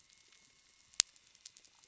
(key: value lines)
label: anthrophony, boat engine
recorder: SoundTrap 300